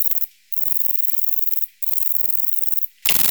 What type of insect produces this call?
orthopteran